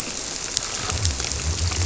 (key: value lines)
label: biophony
recorder: SoundTrap 300